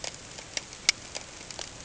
{"label": "ambient", "recorder": "HydroMoth"}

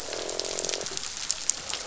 {"label": "biophony, croak", "recorder": "SoundTrap 500"}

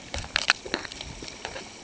{"label": "ambient", "recorder": "HydroMoth"}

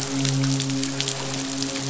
{"label": "biophony, midshipman", "recorder": "SoundTrap 500"}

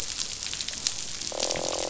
{"label": "biophony, croak", "recorder": "SoundTrap 500"}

